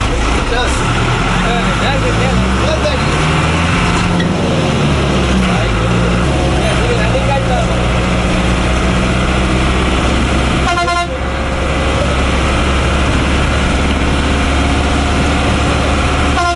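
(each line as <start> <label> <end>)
0.0 An engine rumbles intermittently with honking, traffic noises, and overlapping voices. 16.6
1.6 People are talking in the background. 3.6
6.7 People are talking in the background. 7.9
10.7 A vehicle horn is sounding. 11.6
16.0 A bus horn sounds. 16.6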